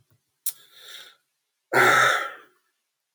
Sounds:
Sigh